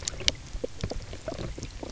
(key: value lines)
label: biophony, knock croak
recorder: SoundTrap 300